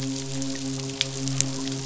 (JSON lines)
{"label": "biophony, midshipman", "recorder": "SoundTrap 500"}